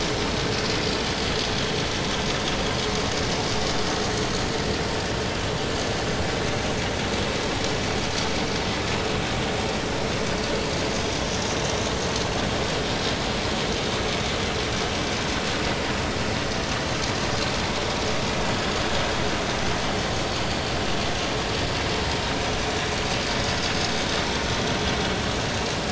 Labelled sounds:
23.3	23.7	vessel noise, 5.0 to 6.8 kHz

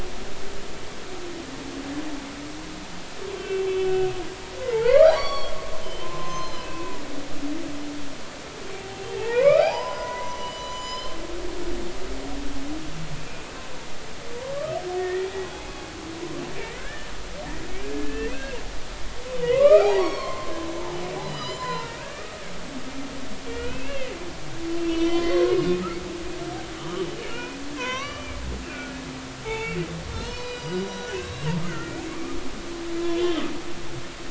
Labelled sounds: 3.4	6.9	humpback whale, 0.83 to 6.3 kHz
9.2	11.2	humpback whale, 0.80 to 8.0 kHz
13.3	13.5	humpback whale, 2.3 to 2.6 kHz
15.0	15.8	humpback whale, 1.8 to 2.6 kHz
16.6	17.1	humpback whale, 1.4 to 2.1 kHz
17.8	18.6	humpback whale, 1.5 to 2.8 kHz
19.4	22.4	humpback whale, 0.80 to 7.2 kHz
23.5	24.1	humpback whale, 1.4 to 3.2 kHz
24.8	25.8	humpback whale, 1.0 to 5.8 kHz
26.8	28.4	humpback whale, 0.93 to 4.0 kHz
28.7	28.9	humpback whale, 1.4 to 1.5 kHz
29.4	29.8	humpback whale, 0.80 to 2.8 kHz
30.1	32.4	humpback whale, 0.99 to 7.9 kHz
33.0	33.4	humpback whale, 2.7 to 3.6 kHz

